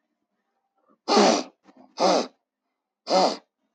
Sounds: Sniff